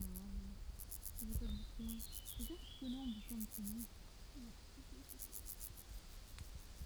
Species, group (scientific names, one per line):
Chorthippus vagans
Orthoptera